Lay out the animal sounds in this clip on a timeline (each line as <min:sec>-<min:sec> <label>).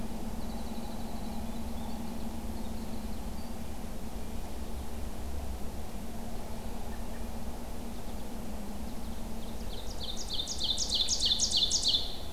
0:00.2-0:03.6 Winter Wren (Troglodytes hiemalis)
0:03.3-0:04.6 Red-breasted Nuthatch (Sitta canadensis)
0:06.8-0:07.3 American Robin (Turdus migratorius)
0:09.2-0:12.3 Ovenbird (Seiurus aurocapilla)